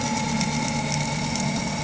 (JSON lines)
{"label": "anthrophony, boat engine", "recorder": "HydroMoth"}